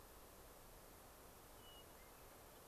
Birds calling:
Hermit Thrush (Catharus guttatus)

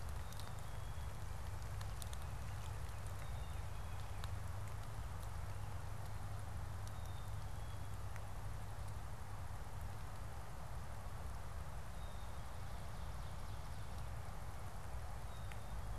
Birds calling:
Ovenbird (Seiurus aurocapilla)
Black-capped Chickadee (Poecile atricapillus)
Baltimore Oriole (Icterus galbula)

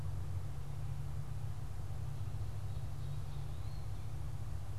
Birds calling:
Eastern Wood-Pewee (Contopus virens)

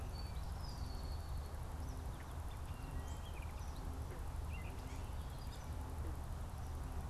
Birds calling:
Gray Catbird (Dumetella carolinensis)

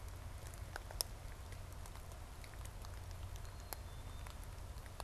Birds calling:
Black-capped Chickadee (Poecile atricapillus)

